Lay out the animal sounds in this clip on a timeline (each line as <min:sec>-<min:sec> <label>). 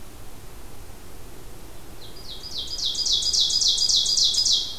0:01.7-0:04.8 Ovenbird (Seiurus aurocapilla)